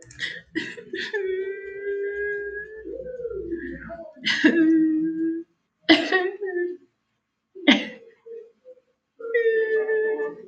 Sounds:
Sniff